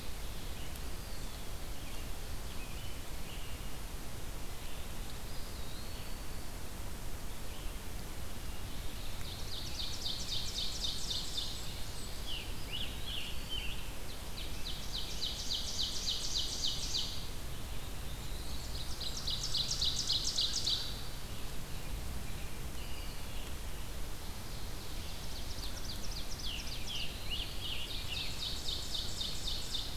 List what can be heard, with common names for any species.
Eastern Wood-Pewee, Scarlet Tanager, Ovenbird, Blackburnian Warbler, Black-throated Blue Warbler